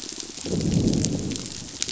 {"label": "biophony, growl", "recorder": "SoundTrap 500"}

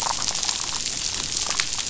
{"label": "biophony, damselfish", "recorder": "SoundTrap 500"}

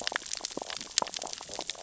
{"label": "biophony, sea urchins (Echinidae)", "recorder": "SoundTrap 600 or HydroMoth"}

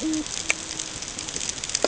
{"label": "ambient", "recorder": "HydroMoth"}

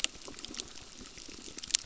{"label": "biophony, crackle", "recorder": "SoundTrap 600"}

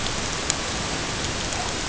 {"label": "ambient", "recorder": "HydroMoth"}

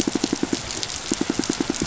{"label": "biophony, pulse", "recorder": "SoundTrap 500"}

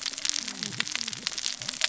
{"label": "biophony, cascading saw", "recorder": "SoundTrap 600 or HydroMoth"}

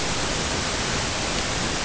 {"label": "ambient", "recorder": "HydroMoth"}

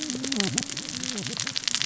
{"label": "biophony, cascading saw", "recorder": "SoundTrap 600 or HydroMoth"}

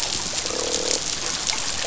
{"label": "biophony, croak", "recorder": "SoundTrap 500"}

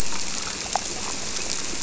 {"label": "biophony", "recorder": "SoundTrap 300"}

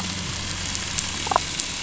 {"label": "anthrophony, boat engine", "recorder": "SoundTrap 500"}
{"label": "biophony, damselfish", "recorder": "SoundTrap 500"}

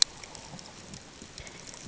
{"label": "ambient", "recorder": "HydroMoth"}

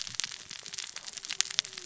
{"label": "biophony, cascading saw", "recorder": "SoundTrap 600 or HydroMoth"}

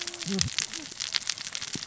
{"label": "biophony, cascading saw", "recorder": "SoundTrap 600 or HydroMoth"}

